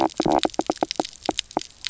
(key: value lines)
label: biophony, knock croak
recorder: SoundTrap 300